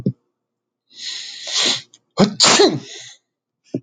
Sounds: Sneeze